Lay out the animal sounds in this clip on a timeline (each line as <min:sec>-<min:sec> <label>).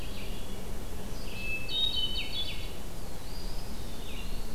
0:00.0-0:04.5 Red-eyed Vireo (Vireo olivaceus)
0:01.0-0:02.8 Hermit Thrush (Catharus guttatus)
0:03.0-0:04.5 Eastern Wood-Pewee (Contopus virens)